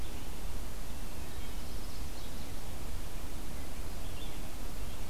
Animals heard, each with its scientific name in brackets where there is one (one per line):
Red-eyed Vireo (Vireo olivaceus)
Wood Thrush (Hylocichla mustelina)